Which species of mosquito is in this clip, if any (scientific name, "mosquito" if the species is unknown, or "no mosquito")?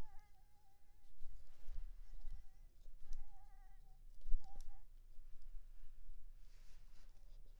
Anopheles maculipalpis